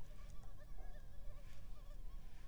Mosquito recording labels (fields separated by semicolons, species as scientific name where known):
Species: Culex pipiens complex; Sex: female; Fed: unfed; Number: one; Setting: cup